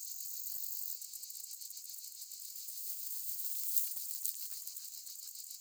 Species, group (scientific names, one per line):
Saga hellenica
Orthoptera